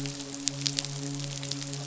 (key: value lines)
label: biophony, midshipman
recorder: SoundTrap 500